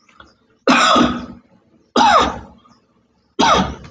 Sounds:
Cough